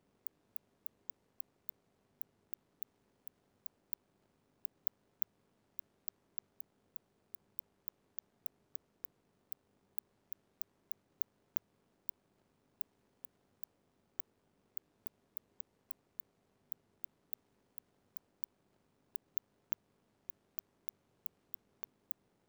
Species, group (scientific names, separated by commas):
Cyrtaspis scutata, Orthoptera